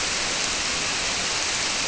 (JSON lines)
{"label": "biophony", "recorder": "SoundTrap 300"}